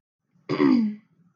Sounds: Throat clearing